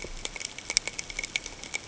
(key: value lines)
label: ambient
recorder: HydroMoth